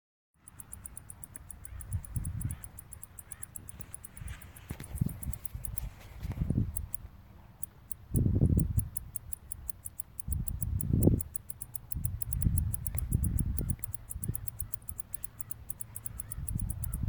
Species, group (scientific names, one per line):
Decticus albifrons
Orthoptera